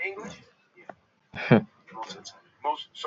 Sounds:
Laughter